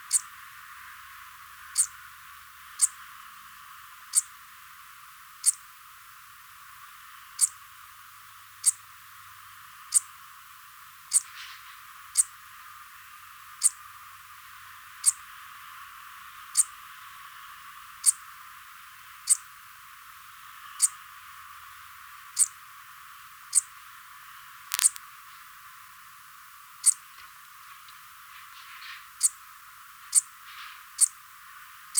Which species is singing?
Eupholidoptera megastyla